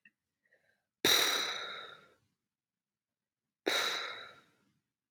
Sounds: Sigh